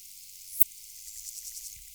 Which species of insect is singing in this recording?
Poecilimon affinis